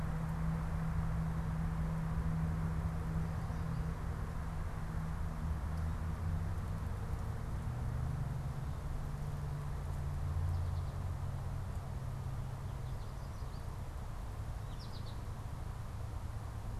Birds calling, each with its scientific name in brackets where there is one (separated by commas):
American Goldfinch (Spinus tristis), Gray Catbird (Dumetella carolinensis)